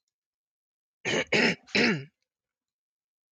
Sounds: Throat clearing